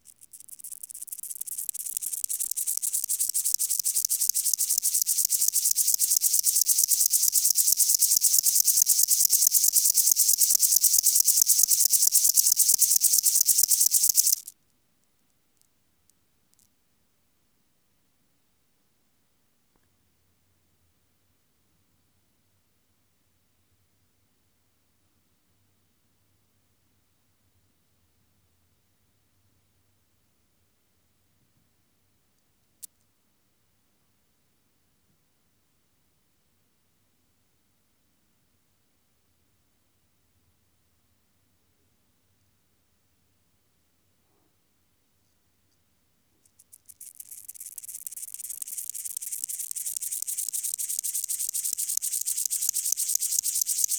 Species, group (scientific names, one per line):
Chorthippus apricarius
Orthoptera